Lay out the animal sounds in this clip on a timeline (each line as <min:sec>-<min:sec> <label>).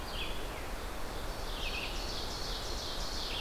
0:00.0-0:00.5 Hermit Thrush (Catharus guttatus)
0:00.0-0:03.4 Red-eyed Vireo (Vireo olivaceus)
0:00.8-0:03.4 Ovenbird (Seiurus aurocapilla)